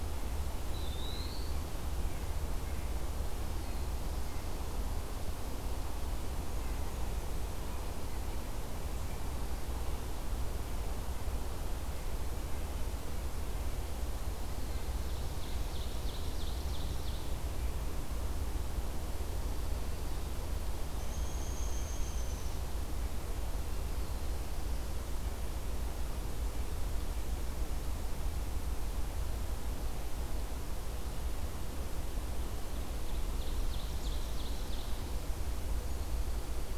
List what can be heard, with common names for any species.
Eastern Wood-Pewee, Ovenbird, Downy Woodpecker